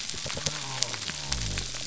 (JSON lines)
{"label": "biophony", "recorder": "SoundTrap 300"}